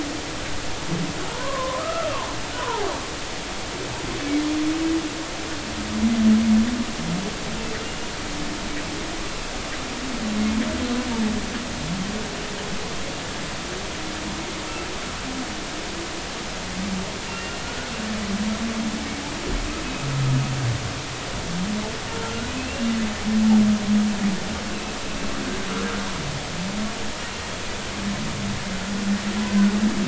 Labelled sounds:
1.3	2.9	humpback whale, 0.80 to 1.4 kHz
17.3	17.9	humpback whale, 1.4 to 2.8 kHz
22.1	23.0	humpback whale, 1.3 to 2.8 kHz

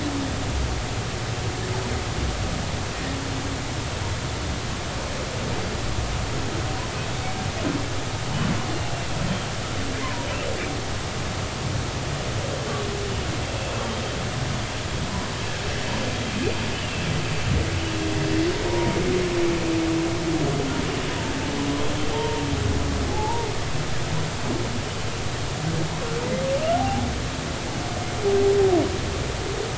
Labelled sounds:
10.0	10.3	humpback whale, 0.90 to 1.1 kHz
16.7	17.1	humpback whale, 2.6 to 3.0 kHz
18.7	19.0	humpback whale, 0.90 to 1.1 kHz
22.1	23.5	humpback whale, 0.80 to 0.99 kHz
26.8	27.1	humpback whale, 0.80 to 0.86 kHz

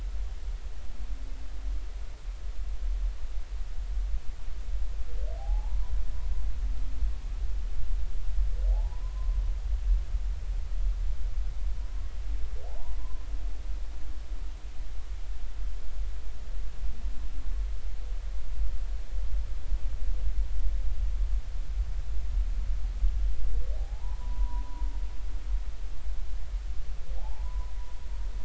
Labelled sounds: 5.4	5.8	humpback whale, 0.80 to 1.0 kHz
8.7	9.4	humpback whale, 0.80 to 1.1 kHz
12.7	13.0	humpback whale, 0.80 to 1.1 kHz
23.8	24.9	humpback whale, 0.80 to 1.1 kHz
27.2	27.7	humpback whale, 0.80 to 1.1 kHz

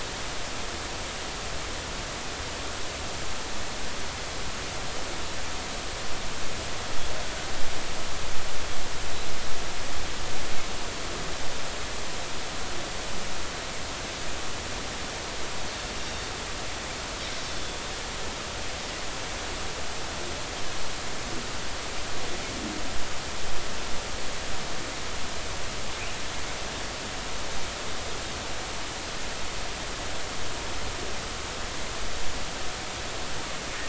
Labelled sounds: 16.0	16.3	Pacific white-sided dolphin, 3.6 to 3.7 kHz

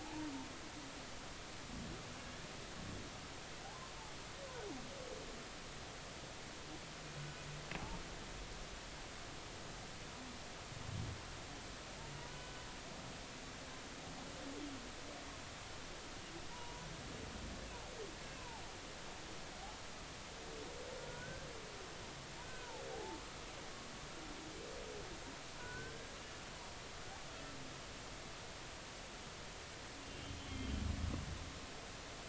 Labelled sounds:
0.0	0.3	humpback whale, 0.80 to 0.99 kHz
13.3	13.6	humpback whale, 1.4 to 1.5 kHz
16.5	16.9	humpback whale, 0.90 to 1.0 kHz
18.4	18.6	humpback whale, 0.80 to 1.1 kHz
21.1	21.5	humpback whale, 1.4 to 1.6 kHz
22.4	23.2	humpback whale, 0.80 to 1.6 kHz
25.6	26.4	humpback whale, 1.4 to 2.9 kHz
30.0	30.7	humpback whale, 2.7 to 3.4 kHz

